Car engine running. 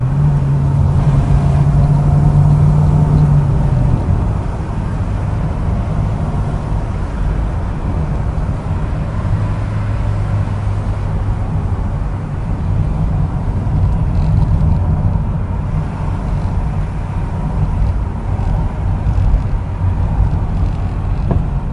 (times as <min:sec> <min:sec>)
0:00.0 0:04.3